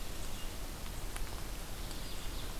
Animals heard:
Ovenbird (Seiurus aurocapilla)

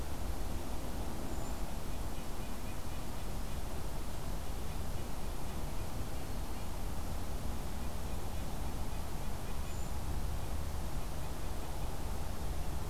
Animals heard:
Brown Creeper (Certhia americana), Red-breasted Nuthatch (Sitta canadensis)

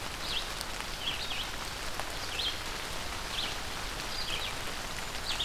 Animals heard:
Red-eyed Vireo (Vireo olivaceus), Black-and-white Warbler (Mniotilta varia)

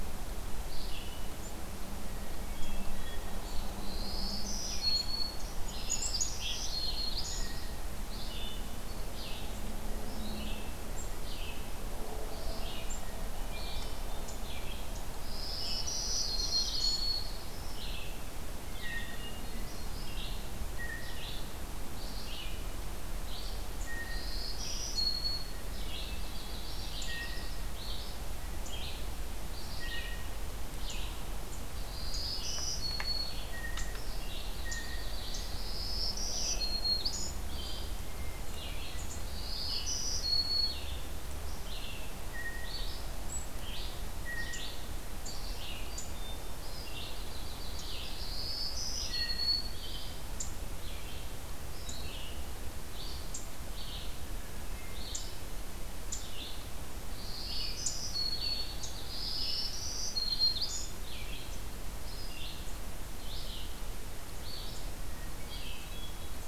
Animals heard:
Yellow-rumped Warbler (Setophaga coronata), Red-eyed Vireo (Vireo olivaceus), Black-capped Chickadee (Poecile atricapillus), Blue Jay (Cyanocitta cristata), Black-throated Green Warbler (Setophaga virens), Hermit Thrush (Catharus guttatus)

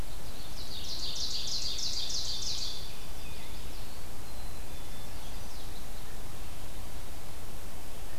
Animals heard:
Chestnut-sided Warbler (Setophaga pensylvanica), Black-capped Chickadee (Poecile atricapillus), Ovenbird (Seiurus aurocapilla)

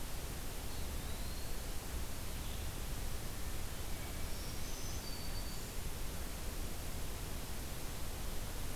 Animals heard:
Eastern Wood-Pewee (Contopus virens), Black-throated Green Warbler (Setophaga virens), Hermit Thrush (Catharus guttatus)

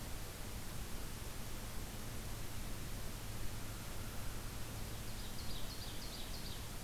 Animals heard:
American Crow (Corvus brachyrhynchos), Ovenbird (Seiurus aurocapilla)

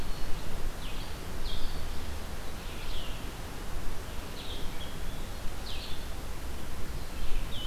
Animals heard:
Red-eyed Vireo (Vireo olivaceus), Blue-headed Vireo (Vireo solitarius)

